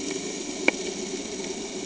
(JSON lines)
{"label": "anthrophony, boat engine", "recorder": "HydroMoth"}